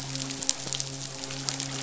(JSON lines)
{"label": "biophony, midshipman", "recorder": "SoundTrap 500"}